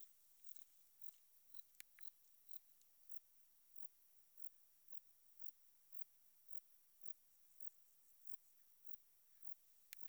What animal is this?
Metrioptera saussuriana, an orthopteran